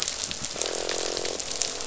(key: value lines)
label: biophony, croak
recorder: SoundTrap 500